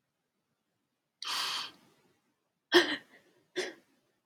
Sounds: Sniff